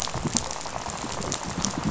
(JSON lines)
{"label": "biophony, rattle", "recorder": "SoundTrap 500"}